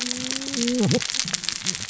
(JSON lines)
{"label": "biophony, cascading saw", "recorder": "SoundTrap 600 or HydroMoth"}